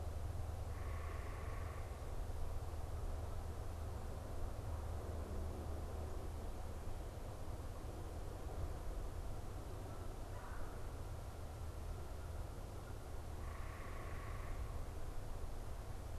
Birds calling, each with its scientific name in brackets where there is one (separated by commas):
unidentified bird, Red-bellied Woodpecker (Melanerpes carolinus)